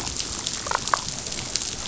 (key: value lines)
label: biophony, damselfish
recorder: SoundTrap 500